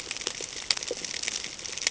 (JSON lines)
{"label": "ambient", "recorder": "HydroMoth"}